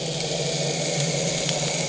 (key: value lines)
label: anthrophony, boat engine
recorder: HydroMoth